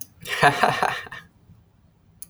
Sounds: Laughter